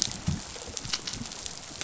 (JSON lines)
{"label": "biophony, rattle response", "recorder": "SoundTrap 500"}